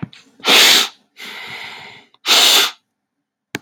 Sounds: Sniff